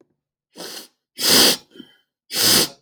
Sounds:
Sniff